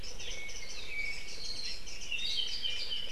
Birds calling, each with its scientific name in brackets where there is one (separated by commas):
Apapane (Himatione sanguinea), Warbling White-eye (Zosterops japonicus)